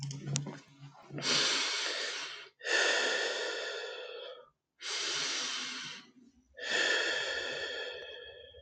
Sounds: Sigh